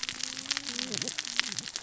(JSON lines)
{"label": "biophony, cascading saw", "recorder": "SoundTrap 600 or HydroMoth"}